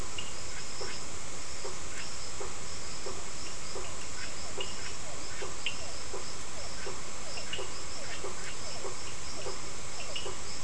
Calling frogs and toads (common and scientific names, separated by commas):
Burmeister's tree frog (Boana prasina), Scinax perereca, Cochran's lime tree frog (Sphaenorhynchus surdus), Physalaemus cuvieri